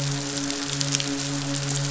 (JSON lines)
{"label": "biophony, midshipman", "recorder": "SoundTrap 500"}